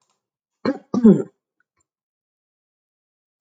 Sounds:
Throat clearing